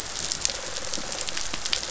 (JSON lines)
{"label": "biophony, rattle response", "recorder": "SoundTrap 500"}